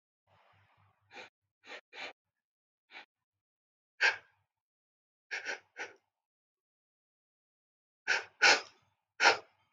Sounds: Sniff